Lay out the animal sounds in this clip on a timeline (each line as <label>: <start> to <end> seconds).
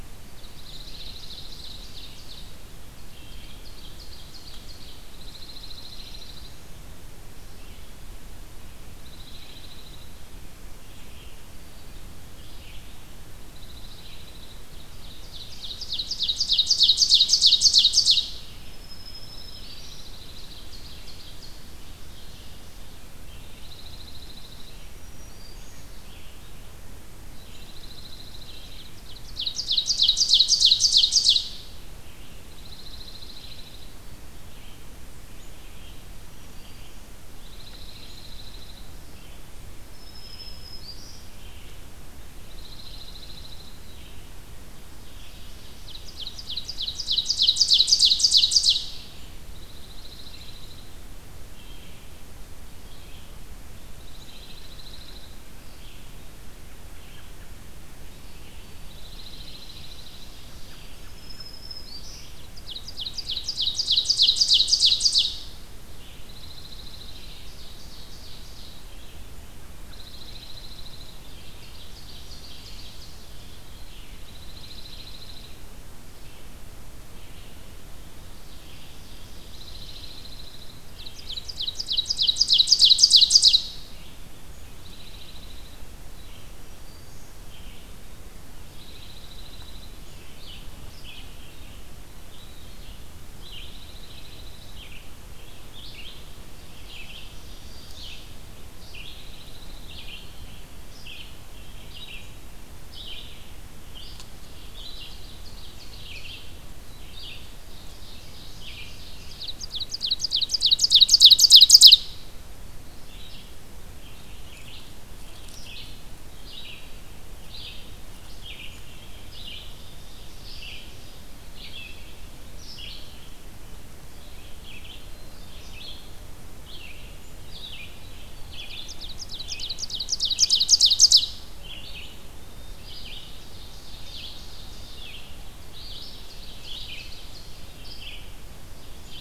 Red-eyed Vireo (Vireo olivaceus): 0.0 to 15.8 seconds
Dark-eyed Junco (Junco hyemalis): 0.4 to 1.7 seconds
Ovenbird (Seiurus aurocapilla): 0.8 to 2.5 seconds
Wood Thrush (Hylocichla mustelina): 3.0 to 3.7 seconds
Ovenbird (Seiurus aurocapilla): 3.1 to 5.2 seconds
Dark-eyed Junco (Junco hyemalis): 5.1 to 6.6 seconds
Dark-eyed Junco (Junco hyemalis): 9.0 to 10.3 seconds
Dark-eyed Junco (Junco hyemalis): 13.5 to 14.6 seconds
Ovenbird (Seiurus aurocapilla): 14.6 to 18.5 seconds
Red-eyed Vireo (Vireo olivaceus): 18.3 to 74.2 seconds
Black-throated Green Warbler (Setophaga virens): 18.4 to 20.1 seconds
Dark-eyed Junco (Junco hyemalis): 19.2 to 20.7 seconds
Ovenbird (Seiurus aurocapilla): 19.3 to 23.1 seconds
Dark-eyed Junco (Junco hyemalis): 23.5 to 24.8 seconds
Black-throated Green Warbler (Setophaga virens): 24.3 to 26.1 seconds
Dark-eyed Junco (Junco hyemalis): 27.3 to 28.9 seconds
Ovenbird (Seiurus aurocapilla): 28.4 to 31.6 seconds
Dark-eyed Junco (Junco hyemalis): 32.4 to 33.9 seconds
Black-throated Green Warbler (Setophaga virens): 36.0 to 37.1 seconds
Dark-eyed Junco (Junco hyemalis): 37.4 to 38.9 seconds
Black-throated Green Warbler (Setophaga virens): 39.9 to 41.3 seconds
Dark-eyed Junco (Junco hyemalis): 42.3 to 43.8 seconds
Ovenbird (Seiurus aurocapilla): 45.5 to 48.9 seconds
Dark-eyed Junco (Junco hyemalis): 49.4 to 51.0 seconds
Dark-eyed Junco (Junco hyemalis): 54.0 to 55.4 seconds
Dark-eyed Junco (Junco hyemalis): 58.8 to 60.3 seconds
American Robin (Turdus migratorius): 60.4 to 61.5 seconds
Black-throated Green Warbler (Setophaga virens): 60.8 to 62.3 seconds
Ovenbird (Seiurus aurocapilla): 62.3 to 65.5 seconds
Dark-eyed Junco (Junco hyemalis): 66.2 to 67.4 seconds
Ovenbird (Seiurus aurocapilla): 66.4 to 69.0 seconds
Dark-eyed Junco (Junco hyemalis): 69.8 to 71.2 seconds
Ovenbird (Seiurus aurocapilla): 70.9 to 73.3 seconds
Dark-eyed Junco (Junco hyemalis): 74.2 to 75.5 seconds
Red-eyed Vireo (Vireo olivaceus): 74.6 to 133.3 seconds
Ovenbird (Seiurus aurocapilla): 78.3 to 80.1 seconds
Dark-eyed Junco (Junco hyemalis): 79.5 to 80.8 seconds
Ovenbird (Seiurus aurocapilla): 80.8 to 83.8 seconds
Dark-eyed Junco (Junco hyemalis): 84.8 to 85.8 seconds
Black-throated Green Warbler (Setophaga virens): 86.0 to 87.3 seconds
Dark-eyed Junco (Junco hyemalis): 88.8 to 89.9 seconds
Dark-eyed Junco (Junco hyemalis): 93.5 to 94.9 seconds
Ovenbird (Seiurus aurocapilla): 96.9 to 98.2 seconds
Dark-eyed Junco (Junco hyemalis): 99.0 to 100.1 seconds
Ovenbird (Seiurus aurocapilla): 104.4 to 106.6 seconds
Ovenbird (Seiurus aurocapilla): 107.5 to 112.3 seconds
Ovenbird (Seiurus aurocapilla): 119.5 to 121.3 seconds
Black-capped Chickadee (Poecile atricapillus): 124.8 to 126.0 seconds
Ovenbird (Seiurus aurocapilla): 128.5 to 131.4 seconds
Black-capped Chickadee (Poecile atricapillus): 132.3 to 133.3 seconds
Ovenbird (Seiurus aurocapilla): 132.7 to 135.3 seconds
Red-eyed Vireo (Vireo olivaceus): 134.0 to 139.2 seconds
Ovenbird (Seiurus aurocapilla): 135.8 to 137.8 seconds
Ovenbird (Seiurus aurocapilla): 138.5 to 139.2 seconds